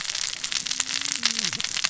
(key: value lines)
label: biophony, cascading saw
recorder: SoundTrap 600 or HydroMoth